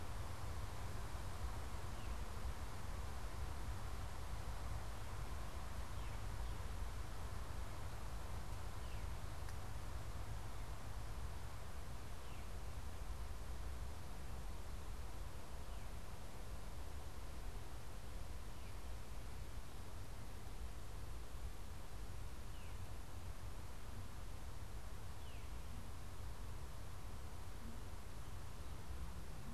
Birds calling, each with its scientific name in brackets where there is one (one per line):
Veery (Catharus fuscescens)